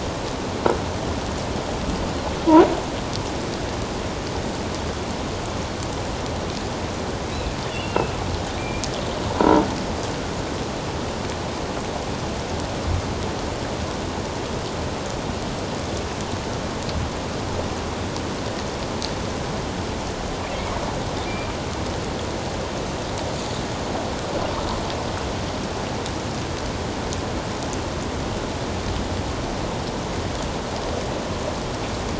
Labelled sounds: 7.3	8.1	killer whale, offshore, 2.3 to 3.6 kHz
8.6	8.9	killer whale, offshore, 2.3 to 2.5 kHz
9.4	9.7	croaking sound likely from a nearby submerged object, 0.88 to 1.0 kHz

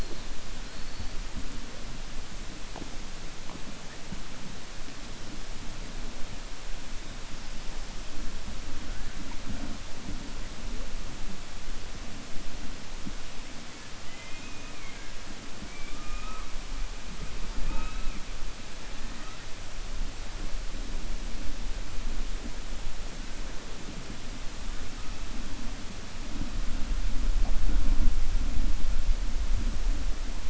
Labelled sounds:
14.0	15.1	killer whale, 1.2 to 3.2 kHz

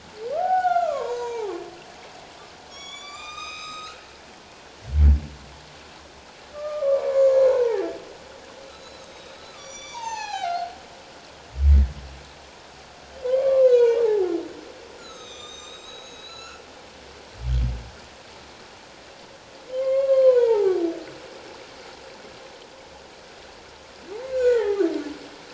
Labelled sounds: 1.0	1.5	humpback whale, 1.8 to 6.8 kHz
2.7	4.0	humpback whale, 1.0 to 7.7 kHz
6.5	7.9	humpback whale, 0.78 to 2.4 kHz
8.7	10.7	humpback whale, 0.78 to 7.4 kHz
13.2	14.0	humpback whale, 0.84 to 6.4 kHz
15.0	16.6	humpback whale, 1.1 to 7.7 kHz
17.4	17.7	humpback whale, 3.0 to 3.4 kHz
19.7	20.8	humpback whale, 0.78 to 3.3 kHz
24.3	24.8	humpback whale, 0.78 to 2.7 kHz

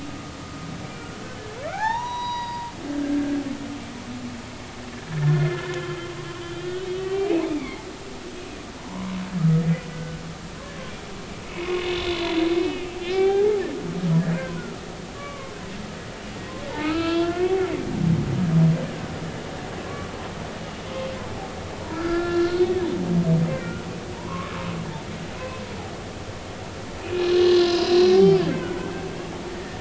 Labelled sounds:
1.7	2.7	humpback whale, 0.80 to 5.9 kHz
5.1	5.7	humpback whale, 1.3 to 1.9 kHz
6.5	7.8	humpback whale, 0.80 to 3.4 kHz
8.7	10.2	humpback whale, 0.86 to 1.6 kHz
11.5	12.2	humpback whale, 2.4 to 3.6 kHz
12.6	13.6	humpback whale, 0.80 to 3.0 kHz
14.4	14.8	humpback whale, 0.96 to 1.6 kHz
15.1	15.5	humpback whale, 1.0 to 1.2 kHz
16.7	17.6	humpback whale, 1.0 to 3.1 kHz
19.8	21.1	humpback whale, 1.0 to 3.3 kHz
21.9	22.7	humpback whale, 1.3 to 4.4 kHz
23.6	24.5	humpback whale, 0.90 to 1.5 kHz
25.4	25.6	humpback whale, 0.96 to 1.1 kHz
27.0	29.7	humpback whale, 0.80 to 5.2 kHz

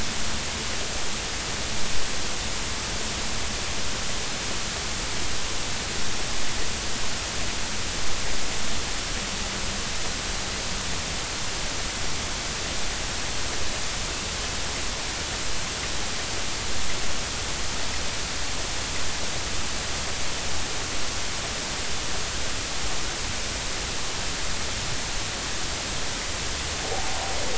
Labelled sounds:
26.9	27.2	humpback whale, 0.80 to 0.93 kHz

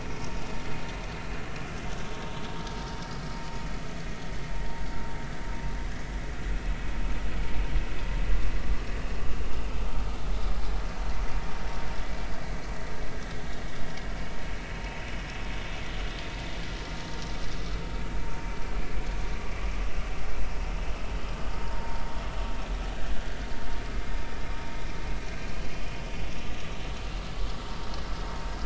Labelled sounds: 8.6	8.9	vessel noise, 1.1 to 1.2 kHz
21.6	21.9	vessel noise, 0.90 to 0.96 kHz

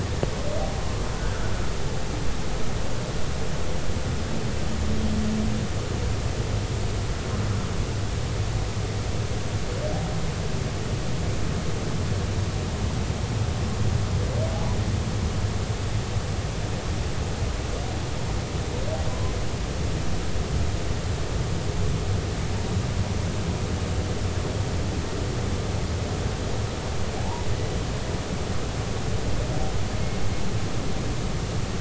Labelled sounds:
1.1	1.5	humpback whale, 1.3 to 1.7 kHz
27.2	27.5	humpback whale, 0.80 to 1.0 kHz

